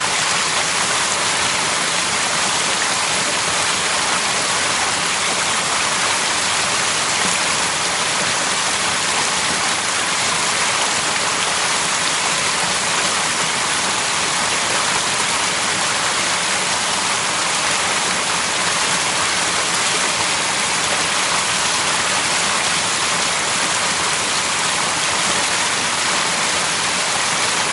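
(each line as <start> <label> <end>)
0.0 Water pouring loudly onto an accumulation, possibly from rainfall or a waterfall. 27.7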